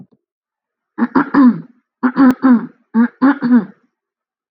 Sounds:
Throat clearing